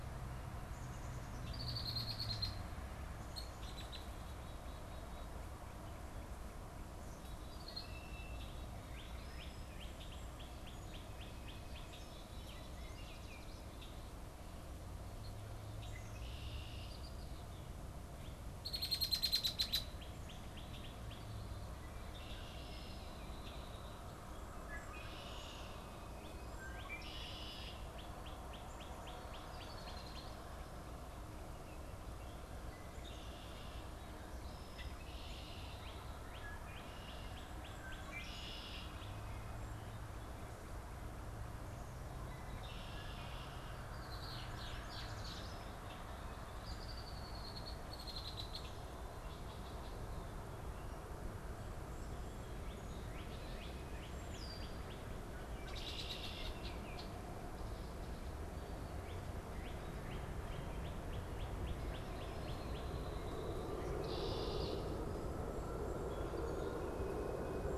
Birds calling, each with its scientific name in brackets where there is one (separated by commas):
Red-winged Blackbird (Agelaius phoeniceus), Northern Cardinal (Cardinalis cardinalis)